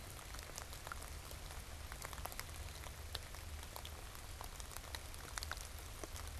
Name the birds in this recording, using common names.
Blue Jay